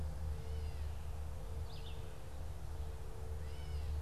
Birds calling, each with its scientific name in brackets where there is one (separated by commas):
Red-eyed Vireo (Vireo olivaceus), Gray Catbird (Dumetella carolinensis)